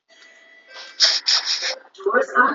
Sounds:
Sniff